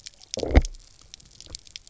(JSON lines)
{"label": "biophony, low growl", "recorder": "SoundTrap 300"}